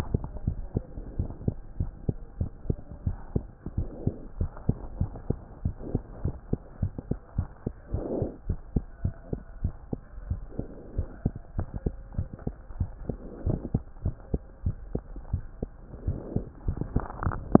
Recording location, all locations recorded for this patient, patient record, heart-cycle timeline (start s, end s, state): mitral valve (MV)
aortic valve (AV)+pulmonary valve (PV)+tricuspid valve (TV)+mitral valve (MV)
#Age: Child
#Sex: Male
#Height: 101.0 cm
#Weight: 15.2 kg
#Pregnancy status: False
#Murmur: Absent
#Murmur locations: nan
#Most audible location: nan
#Systolic murmur timing: nan
#Systolic murmur shape: nan
#Systolic murmur grading: nan
#Systolic murmur pitch: nan
#Systolic murmur quality: nan
#Diastolic murmur timing: nan
#Diastolic murmur shape: nan
#Diastolic murmur grading: nan
#Diastolic murmur pitch: nan
#Diastolic murmur quality: nan
#Outcome: Abnormal
#Campaign: 2015 screening campaign
0.00	0.08	systole
0.08	0.22	S2
0.22	0.42	diastole
0.42	0.55	S1
0.55	0.72	systole
0.72	0.86	S2
0.86	1.12	diastole
1.12	1.30	S1
1.30	1.44	systole
1.44	1.58	S2
1.58	1.78	diastole
1.78	1.90	S1
1.90	2.04	systole
2.04	2.18	S2
2.18	2.40	diastole
2.40	2.52	S1
2.52	2.68	systole
2.68	2.80	S2
2.80	3.04	diastole
3.04	3.18	S1
3.18	3.32	systole
3.32	3.46	S2
3.46	3.74	diastole
3.74	3.90	S1
3.90	4.04	systole
4.04	4.14	S2
4.14	4.38	diastole
4.38	4.50	S1
4.50	4.66	systole
4.66	4.76	S2
4.76	4.96	diastole
4.96	5.12	S1
5.12	5.26	systole
5.26	5.40	S2
5.40	5.62	diastole
5.62	5.76	S1
5.76	5.92	systole
5.92	6.02	S2
6.02	6.22	diastole
6.22	6.36	S1
6.36	6.50	systole
6.50	6.60	S2
6.60	6.80	diastole
6.80	6.94	S1
6.94	7.08	systole
7.08	7.18	S2
7.18	7.36	diastole
7.36	7.46	S1
7.46	7.62	systole
7.62	7.72	S2
7.72	7.92	diastole
7.92	8.04	S1
8.04	8.16	systole
8.16	8.30	S2
8.30	8.48	diastole
8.48	8.60	S1
8.60	8.72	systole
8.72	8.84	S2
8.84	9.02	diastole
9.02	9.14	S1
9.14	9.29	systole
9.29	9.42	S2
9.42	9.62	diastole
9.62	9.76	S1
9.76	9.89	systole
9.89	10.02	S2
10.02	10.24	diastole
10.24	10.40	S1
10.40	10.58	systole
10.58	10.70	S2
10.70	10.96	diastole
10.96	11.06	S1
11.06	11.22	systole
11.22	11.34	S2
11.34	11.56	diastole
11.56	11.68	S1
11.68	11.84	systole
11.84	11.96	S2
11.96	12.16	diastole
12.16	12.28	S1
12.28	12.46	systole
12.46	12.54	S2
12.54	12.74	diastole
12.74	12.88	S1
12.88	13.06	systole
13.06	13.20	S2
13.20	13.44	diastole
13.44	13.60	S1
13.60	13.72	systole
13.72	13.84	S2
13.84	14.04	diastole
14.04	14.16	S1
14.16	14.32	systole
14.32	14.42	S2
14.42	14.64	diastole
14.64	14.78	S1
14.78	14.92	systole
14.92	15.04	S2
15.04	15.30	diastole
15.30	15.44	S1
15.44	15.60	systole
15.60	15.72	S2
15.72	16.00	diastole
16.00	16.18	S1
16.18	16.34	systole
16.34	16.46	S2
16.46	16.64	diastole
16.64	16.80	S1
16.80	16.92	systole
16.92	17.06	S2
17.06	17.22	diastole